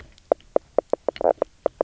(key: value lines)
label: biophony, knock croak
recorder: SoundTrap 300